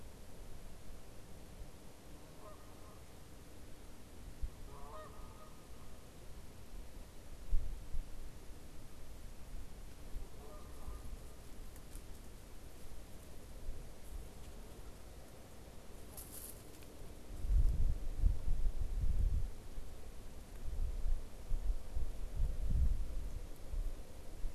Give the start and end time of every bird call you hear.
2.2s-3.0s: Canada Goose (Branta canadensis)
4.4s-5.5s: Canada Goose (Branta canadensis)
10.1s-11.1s: Canada Goose (Branta canadensis)

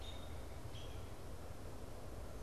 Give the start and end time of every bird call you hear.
0.0s-2.4s: American Robin (Turdus migratorius)

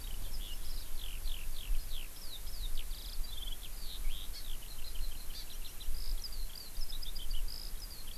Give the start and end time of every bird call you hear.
0.0s-8.2s: Eurasian Skylark (Alauda arvensis)
4.4s-4.5s: Hawaii Amakihi (Chlorodrepanis virens)
5.4s-5.5s: Hawaii Amakihi (Chlorodrepanis virens)

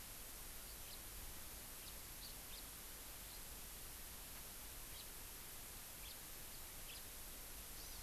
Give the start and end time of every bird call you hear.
0.8s-1.0s: House Finch (Haemorhous mexicanus)
1.8s-1.9s: House Finch (Haemorhous mexicanus)
2.5s-2.6s: House Finch (Haemorhous mexicanus)
3.2s-3.4s: House Finch (Haemorhous mexicanus)
4.9s-5.0s: House Finch (Haemorhous mexicanus)
6.0s-6.1s: House Finch (Haemorhous mexicanus)
6.8s-7.0s: House Finch (Haemorhous mexicanus)
7.7s-8.0s: Hawaii Amakihi (Chlorodrepanis virens)

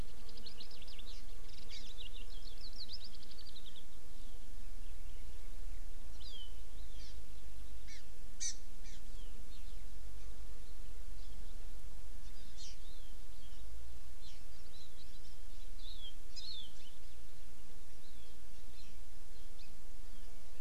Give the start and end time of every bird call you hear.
0.0s-1.2s: Eurasian Skylark (Alauda arvensis)
1.7s-1.9s: Hawaii Amakihi (Chlorodrepanis virens)
6.2s-6.5s: Hawaii Amakihi (Chlorodrepanis virens)
7.0s-7.2s: Hawaii Amakihi (Chlorodrepanis virens)
7.9s-8.0s: Hawaii Amakihi (Chlorodrepanis virens)
8.4s-8.5s: Hawaii Amakihi (Chlorodrepanis virens)
8.9s-9.0s: Hawaii Amakihi (Chlorodrepanis virens)
12.6s-12.8s: Hawaii Amakihi (Chlorodrepanis virens)
14.2s-14.4s: Hawaii Amakihi (Chlorodrepanis virens)
15.8s-16.1s: Hawaii Amakihi (Chlorodrepanis virens)
16.4s-16.7s: Hawaii Amakihi (Chlorodrepanis virens)

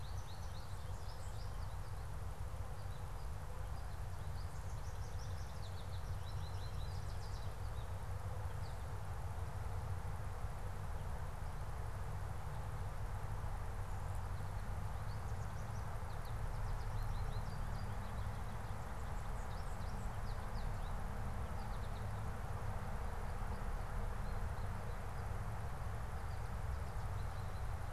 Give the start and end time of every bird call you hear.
0.0s-8.9s: American Goldfinch (Spinus tristis)
14.7s-18.2s: American Goldfinch (Spinus tristis)
19.1s-22.4s: American Goldfinch (Spinus tristis)
23.6s-27.9s: American Goldfinch (Spinus tristis)

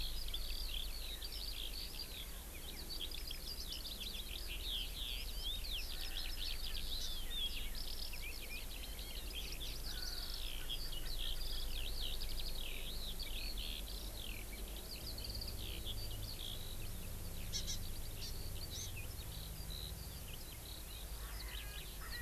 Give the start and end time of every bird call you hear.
0.0s-22.2s: Eurasian Skylark (Alauda arvensis)
21.1s-22.2s: Erckel's Francolin (Pternistis erckelii)

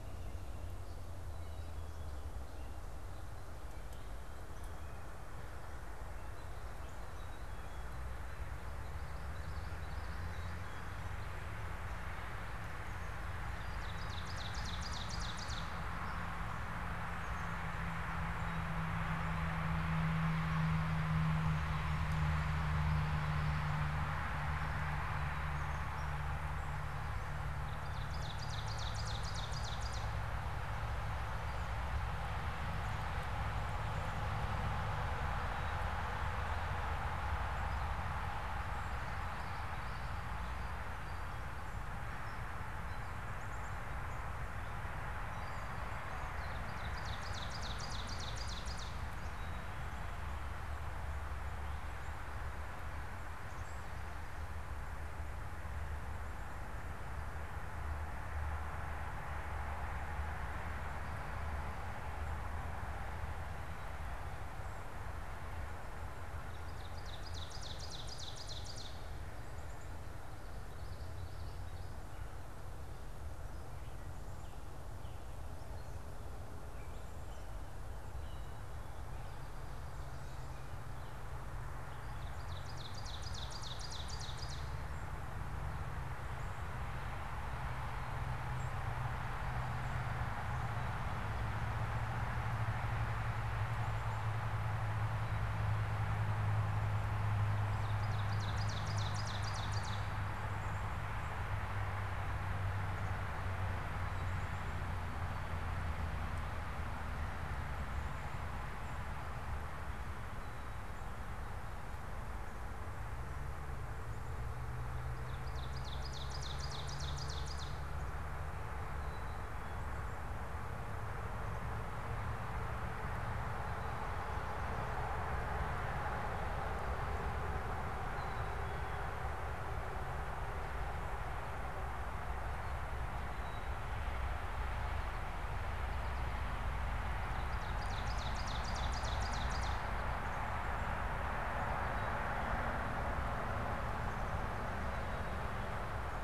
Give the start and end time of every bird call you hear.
7.0s-8.0s: Black-capped Chickadee (Poecile atricapillus)
9.2s-10.9s: Common Yellowthroat (Geothlypis trichas)
13.4s-15.7s: Ovenbird (Seiurus aurocapilla)
17.1s-17.6s: Black-capped Chickadee (Poecile atricapillus)
22.5s-23.8s: Common Yellowthroat (Geothlypis trichas)
27.8s-30.4s: Ovenbird (Seiurus aurocapilla)
38.7s-40.4s: Common Yellowthroat (Geothlypis trichas)
40.6s-43.1s: unidentified bird
43.3s-43.9s: Black-capped Chickadee (Poecile atricapillus)
46.1s-49.1s: Ovenbird (Seiurus aurocapilla)
49.4s-50.4s: Black-capped Chickadee (Poecile atricapillus)
53.1s-53.8s: Black-capped Chickadee (Poecile atricapillus)
66.4s-69.0s: Ovenbird (Seiurus aurocapilla)
69.4s-70.0s: Black-capped Chickadee (Poecile atricapillus)
70.4s-72.1s: Common Yellowthroat (Geothlypis trichas)
75.5s-78.6s: Gray Catbird (Dumetella carolinensis)
82.0s-85.0s: Ovenbird (Seiurus aurocapilla)
88.4s-88.8s: Song Sparrow (Melospiza melodia)
97.7s-100.3s: Ovenbird (Seiurus aurocapilla)
115.2s-117.9s: Ovenbird (Seiurus aurocapilla)
128.1s-129.1s: Black-capped Chickadee (Poecile atricapillus)
133.2s-133.9s: Black-capped Chickadee (Poecile atricapillus)
137.3s-139.7s: Ovenbird (Seiurus aurocapilla)
140.0s-140.6s: Black-capped Chickadee (Poecile atricapillus)
144.8s-145.8s: unidentified bird

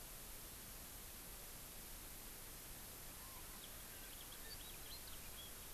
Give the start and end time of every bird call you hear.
3.5s-5.7s: House Finch (Haemorhous mexicanus)

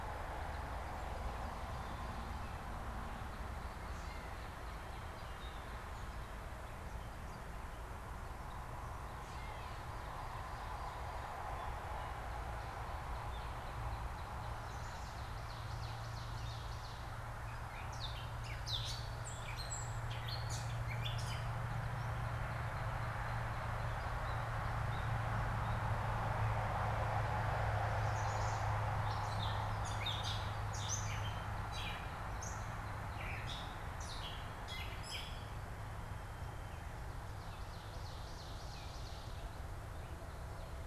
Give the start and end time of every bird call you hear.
3.0s-5.7s: Northern Cardinal (Cardinalis cardinalis)
3.8s-4.6s: Gray Catbird (Dumetella carolinensis)
9.1s-10.0s: Gray Catbird (Dumetella carolinensis)
12.5s-15.1s: Northern Cardinal (Cardinalis cardinalis)
14.6s-17.2s: Ovenbird (Seiurus aurocapilla)
17.5s-21.7s: Gray Catbird (Dumetella carolinensis)
21.9s-24.3s: Northern Cardinal (Cardinalis cardinalis)
24.0s-25.9s: Gray Catbird (Dumetella carolinensis)
27.7s-28.8s: Chestnut-sided Warbler (Setophaga pensylvanica)
28.9s-35.6s: Gray Catbird (Dumetella carolinensis)
37.1s-39.5s: Ovenbird (Seiurus aurocapilla)

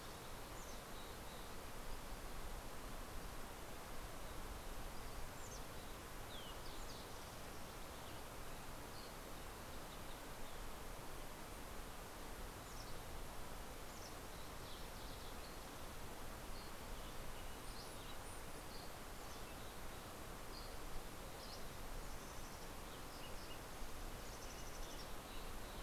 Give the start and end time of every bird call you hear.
0.1s-2.4s: Mountain Chickadee (Poecile gambeli)
5.0s-6.3s: Mountain Chickadee (Poecile gambeli)
6.3s-8.4s: Green-tailed Towhee (Pipilo chlorurus)
8.7s-9.3s: Dusky Flycatcher (Empidonax oberholseri)
12.3s-14.5s: Mountain Chickadee (Poecile gambeli)
14.5s-16.3s: Green-tailed Towhee (Pipilo chlorurus)
16.4s-16.9s: Dusky Flycatcher (Empidonax oberholseri)
18.5s-19.0s: Dusky Flycatcher (Empidonax oberholseri)
20.1s-21.7s: Dusky Flycatcher (Empidonax oberholseri)
21.8s-23.8s: Mountain Chickadee (Poecile gambeli)
24.2s-25.8s: Mountain Chickadee (Poecile gambeli)

